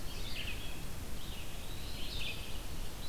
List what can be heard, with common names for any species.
Red-eyed Vireo, Eastern Wood-Pewee